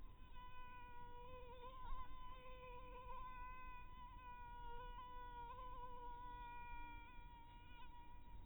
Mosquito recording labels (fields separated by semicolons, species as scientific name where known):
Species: mosquito; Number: one; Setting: cup